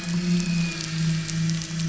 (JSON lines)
{"label": "anthrophony, boat engine", "recorder": "SoundTrap 500"}